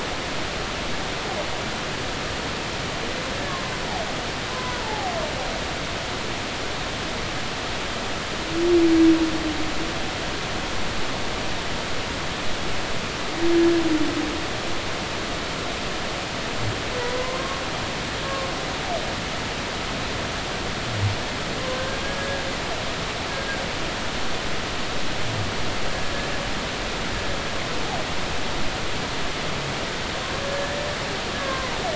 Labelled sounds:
4.5	5.1	humpback whale, 0.80 to 1.1 kHz
17.2	17.6	humpback whale, 0.96 to 1.1 kHz
21.6	22.4	humpback whale, 0.99 to 1.7 kHz
30.5	31.7	humpback whale, 0.96 to 2.0 kHz

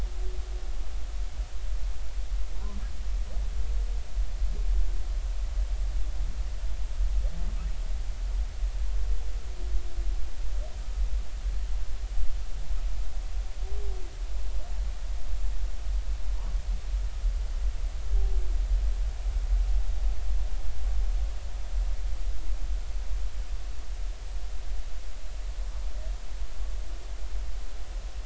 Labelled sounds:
2.5	2.8	humpback whale, 0.83 to 1.2 kHz

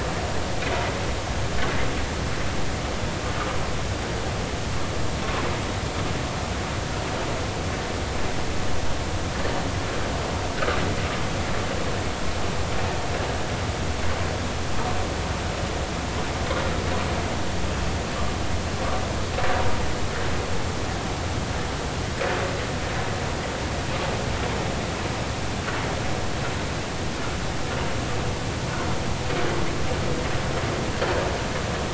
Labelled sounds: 10.5	10.8	vessel noise, 1.1 to 1.6 kHz

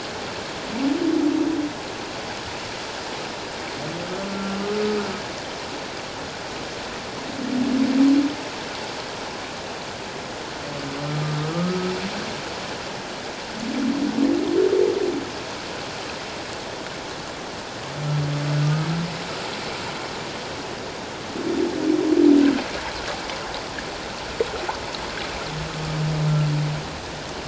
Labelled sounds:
4.6	5.0	humpback whale, 1.2 to 1.3 kHz
11.5	11.9	humpback whale, 1.1 to 1.3 kHz
18.6	18.9	humpback whale, 1.2 to 1.3 kHz

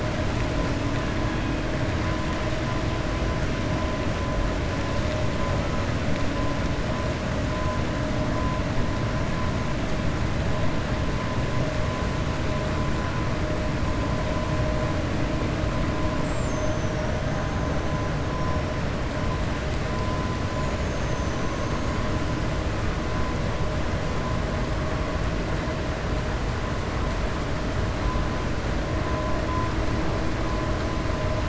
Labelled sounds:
16.1	17.1	killer whale, 5.5 to 7.9 kHz

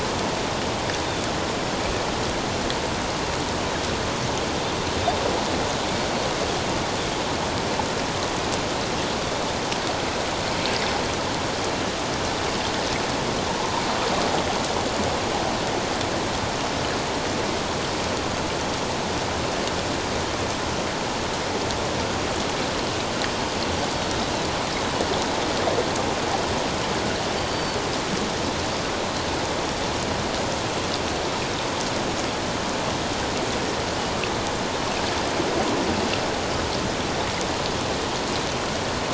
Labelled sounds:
27.5	27.8	Pacific white-sided dolphin, 4.4 to 4.6 kHz

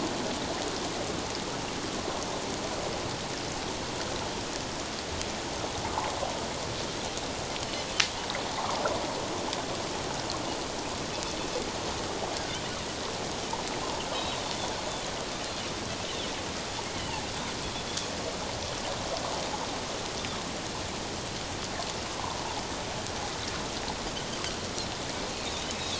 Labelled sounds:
8.5	8.8	water noise, 0.78 to 1.3 kHz
12.3	12.6	Pacific white-sided dolphin, 1.5 to 1.7 kHz
14.1	14.4	Pacific white-sided dolphin, 3.6 to 3.9 kHz
22.1	22.4	water noise, 0.78 to 1.1 kHz

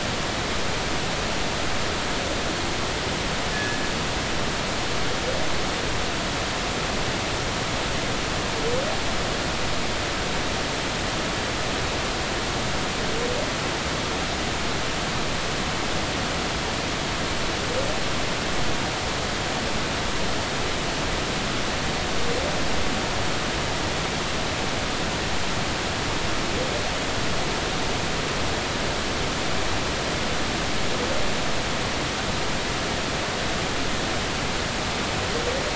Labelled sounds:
3.5	3.8	killer whale, northern resident, G clan, call N24ii, 1.6 to 1.8 kHz

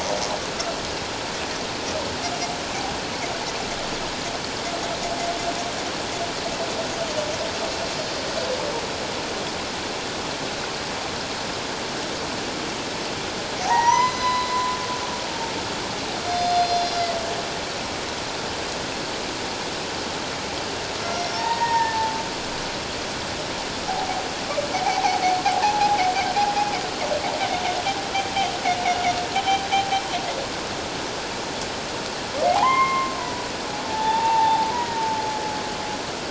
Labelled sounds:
13.6	14.5	humpback whale, 0.78 to 6.2 kHz
16.2	17.2	humpback whale, 3.4 to 5.6 kHz
21.0	22.0	humpback whale, 0.81 to 5.8 kHz
24.7	26.0	humpback whale, 0.78 to 1.0 kHz
32.5	33.5	humpback whale, 0.78 to 2.2 kHz
33.9	35.0	humpback whale, 0.78 to 2.0 kHz

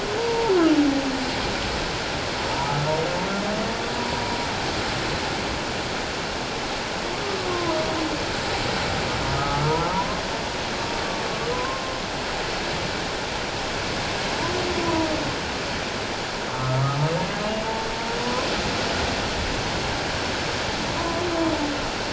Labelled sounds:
0.2	0.5	humpback whale, 0.84 to 0.97 kHz
2.5	2.9	humpback whale, 0.81 to 1.4 kHz
4.0	4.2	humpback whale, 0.91 to 1.0 kHz
7.5	7.8	humpback whale, 0.88 to 1.1 kHz
9.3	10.2	humpback whale, 0.84 to 1.4 kHz
11.5	12.0	humpback whale, 0.97 to 1.1 kHz
16.5	16.8	humpback whale, 1.0 to 1.3 kHz
18.2	18.5	humpback whale, 0.94 to 1.1 kHz
21.0	21.2	humpback whale, 0.94 to 1.1 kHz

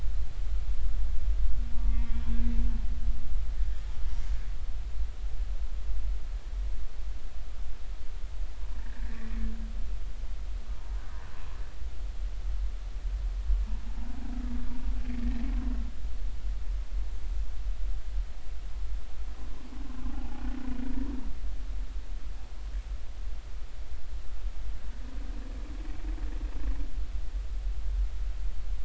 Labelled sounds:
1.8	2.2	humpback whale, 1.1 to 2.2 kHz
8.8	9.2	humpback whale, 1.5 to 2.0 kHz
15.2	15.4	humpback whale, 1.8 to 1.9 kHz

